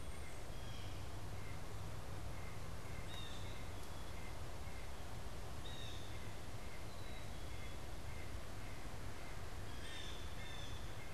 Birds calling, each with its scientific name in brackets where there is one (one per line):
Blue Jay (Cyanocitta cristata)
White-breasted Nuthatch (Sitta carolinensis)